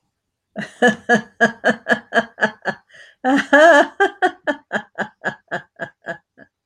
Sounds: Laughter